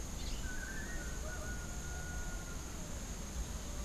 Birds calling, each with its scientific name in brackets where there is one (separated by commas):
Long-tailed Manakin (Chiroxiphia linearis), Crimson-fronted Parakeet (Psittacara finschi)